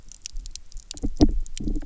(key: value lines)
label: biophony, double pulse
recorder: SoundTrap 300